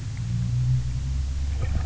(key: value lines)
label: anthrophony, boat engine
recorder: SoundTrap 300